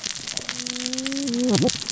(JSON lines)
{"label": "biophony, cascading saw", "recorder": "SoundTrap 600 or HydroMoth"}